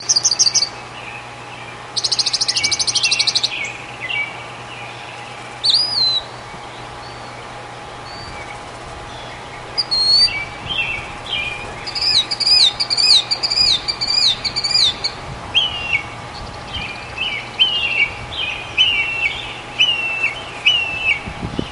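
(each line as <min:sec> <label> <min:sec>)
0:00.0 Different birds chirp in the distance. 0:21.7
0:00.1 A bird chirps nearby. 0:00.8
0:01.9 A bird chirping nearby. 0:03.5
0:02.7 A bird chirps repeatedly in the distance. 0:04.5
0:05.6 A bird chirps nearby. 0:06.3
0:09.7 A bird chirps nearby. 0:10.5
0:10.1 A bird chirps in the distance. 0:12.0
0:11.9 A bird chirps repeatedly nearby. 0:15.3
0:15.5 A bird chirps repeatedly with gradually decreasing intervals between chirps. 0:21.7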